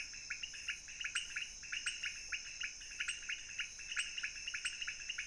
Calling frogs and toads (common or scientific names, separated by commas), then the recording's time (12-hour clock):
pointedbelly frog
2:00am